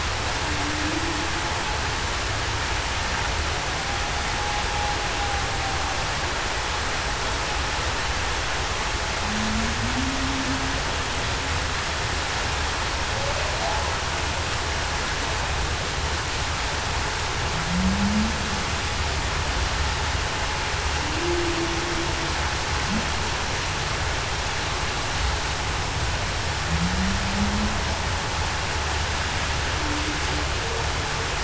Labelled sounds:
0.4	0.9	humpback whale, 0.26 to 0.33 kHz
9.2	10.4	humpback whale, 0.19 to 0.30 kHz
17.7	18.3	humpback whale, 0.19 to 0.26 kHz
21.0	21.7	humpback whale, 0.26 to 0.38 kHz
26.8	27.7	humpback whale, 0.19 to 0.23 kHz

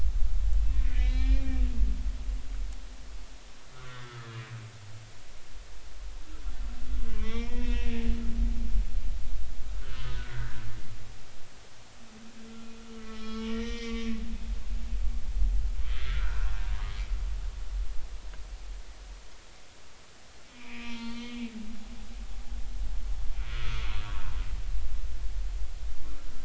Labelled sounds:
0.9	1.6	humpback whale, 1.7 to 4.2 kHz
3.7	4.4	humpback whale, 1.2 to 3.7 kHz
7.1	8.0	humpback whale, 0.86 to 5.6 kHz
9.8	10.6	humpback whale, 1.2 to 3.1 kHz
12.5	14.2	humpback whale, 1.1 to 5.9 kHz
16.0	16.5	humpback whale, 0.93 to 1.7 kHz
20.5	21.5	humpback whale, 0.86 to 3.6 kHz
23.5	23.9	humpback whale, 1.1 to 1.5 kHz

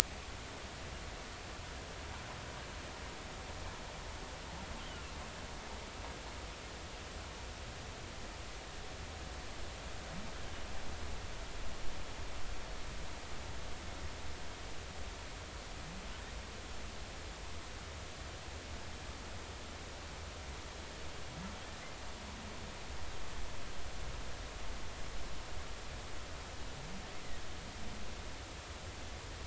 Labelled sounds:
4.8	5.2	humpback whale, 2.6 to 3.3 kHz

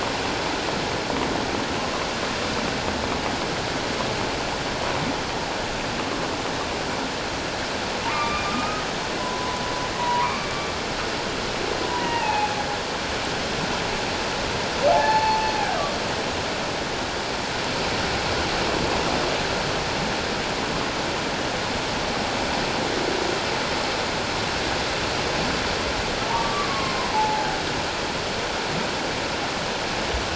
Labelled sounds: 8.1	8.8	humpback whale, 1.1 to 2.6 kHz
9.2	10.5	humpback whale, 0.91 to 2.5 kHz
11.9	12.5	humpback whale, 0.78 to 2.9 kHz
14.9	15.5	humpback whale, 0.78 to 4.4 kHz
26.3	27.5	humpback whale, 0.78 to 1.2 kHz

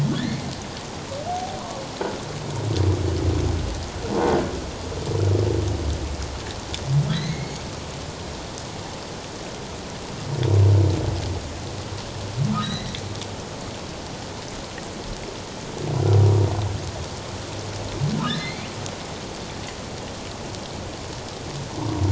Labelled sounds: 0.2	1.6	humpback whale, 0.78 to 2.3 kHz
7.1	7.7	humpback whale, 1.7 to 4.2 kHz
12.6	12.9	humpback whale, 1.7 to 4.1 kHz
18.2	18.7	humpback whale, 2.0 to 3.8 kHz

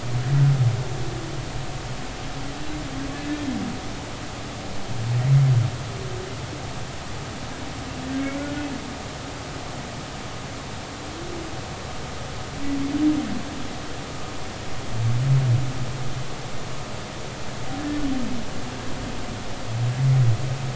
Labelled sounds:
3.1	3.4	humpback whale, 1.7 to 1.8 kHz

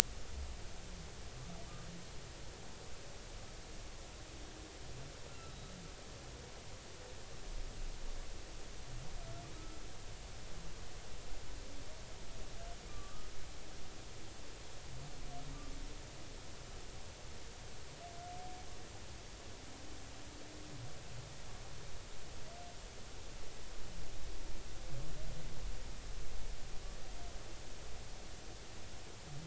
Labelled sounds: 5.3	5.7	humpback whale, 1.3 to 4.0 kHz
9.5	9.8	humpback whale, 1.2 to 1.4 kHz
12.9	13.3	humpback whale, 1.1 to 1.3 kHz

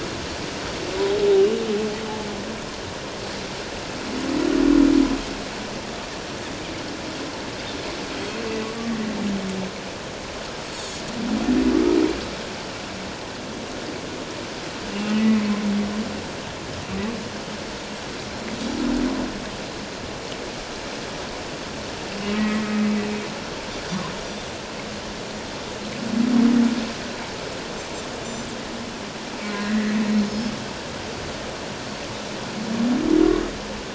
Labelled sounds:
15.1	15.4	humpback whale, 1.9 to 2.0 kHz
22.4	22.8	humpback whale, 1.8 to 2.2 kHz
24.2	24.5	Pacific white-sided dolphin, 3.5 to 3.6 kHz
28.2	28.5	Pacific white-sided dolphin, 7.1 to 7.3 kHz
29.5	30.0	humpback whale, 1.6 to 2.0 kHz

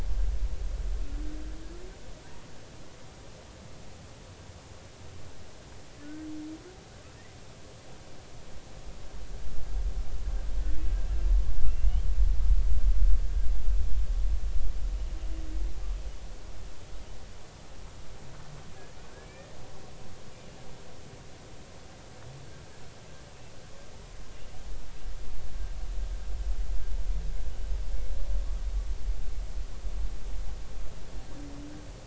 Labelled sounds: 6.0	6.3	humpback whale, 1.4 to 1.6 kHz
10.6	10.9	humpback whale, 1.8 to 2.0 kHz
11.7	12.1	humpback whale, 2.6 to 3.3 kHz
19.2	19.5	humpback whale, 2.2 to 2.5 kHz

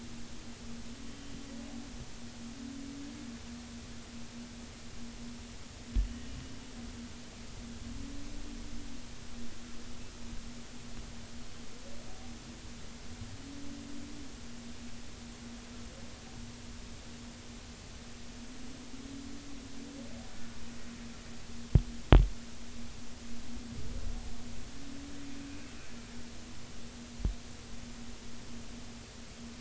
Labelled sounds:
6.0	6.4	humpback whale, 2.8 to 3.0 kHz
25.4	25.8	humpback whale, 2.4 to 2.7 kHz

